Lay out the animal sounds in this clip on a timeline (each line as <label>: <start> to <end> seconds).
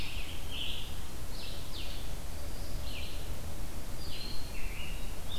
Scarlet Tanager (Piranga olivacea): 0.0 to 0.9 seconds
Red-eyed Vireo (Vireo olivaceus): 0.0 to 5.4 seconds
Blue-headed Vireo (Vireo solitarius): 1.2 to 2.0 seconds
Scarlet Tanager (Piranga olivacea): 4.4 to 5.4 seconds